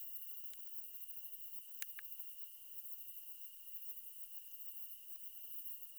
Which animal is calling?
Tessellana tessellata, an orthopteran